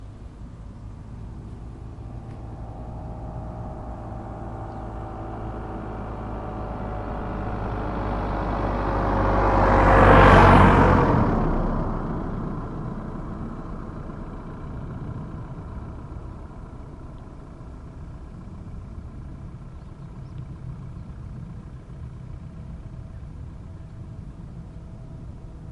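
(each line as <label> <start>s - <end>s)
A car approaches from a distance, its volume gradually increasing. 0.0s - 8.5s
A car engine is running idle. 6.0s - 24.3s
A car passes by loudly. 8.3s - 13.0s
Car passing by with volume gradually decreasing. 12.2s - 18.4s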